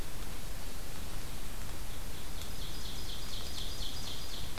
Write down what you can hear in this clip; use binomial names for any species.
Seiurus aurocapilla